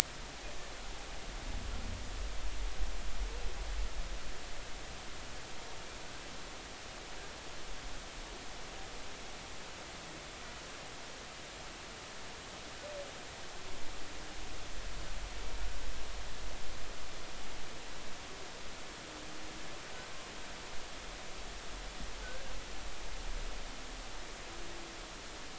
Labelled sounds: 22.2	22.5	humpback whale, 1.4 to 1.6 kHz

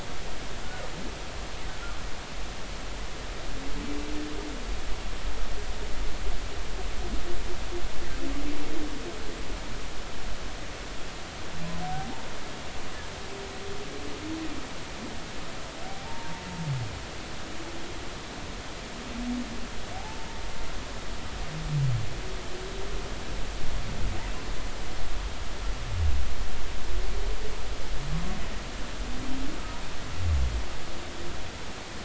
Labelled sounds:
15.9	16.4	humpback whale, 0.80 to 0.99 kHz
20.0	20.3	humpback whale, 0.80 to 0.93 kHz

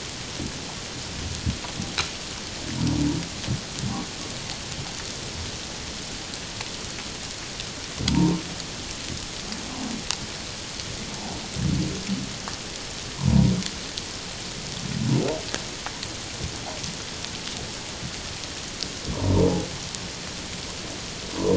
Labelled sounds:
8.1	8.4	humpback whale, 0.88 to 1.1 kHz
13.2	13.5	humpback whale, 0.88 to 1.1 kHz
19.1	19.5	humpback whale, 0.88 to 1.1 kHz

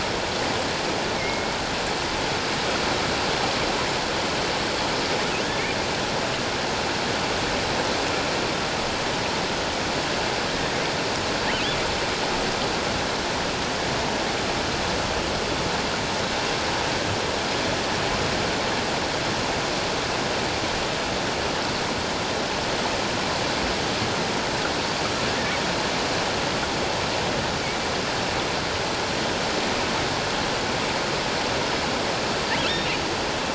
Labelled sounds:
1.2	1.6	killer whale, offshore, 2.0 to 2.3 kHz

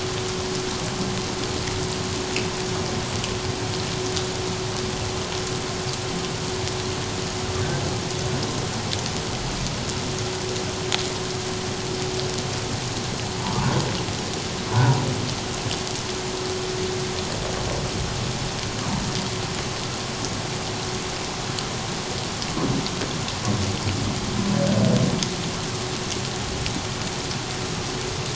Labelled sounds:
14.7	15.0	humpback whale, 0.84 to 1.1 kHz

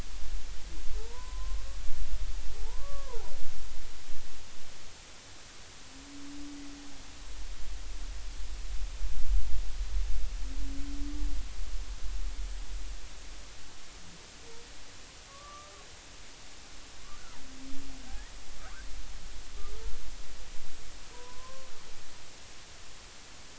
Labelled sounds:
1.0	1.6	humpback whale, 0.83 to 1.1 kHz
2.6	3.3	humpback whale, 0.80 to 1.2 kHz
15.3	15.7	humpback whale, 1.1 to 1.2 kHz
21.1	21.7	humpback whale, 0.93 to 1.2 kHz

